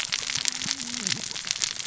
{"label": "biophony, cascading saw", "recorder": "SoundTrap 600 or HydroMoth"}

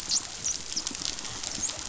{"label": "biophony, dolphin", "recorder": "SoundTrap 500"}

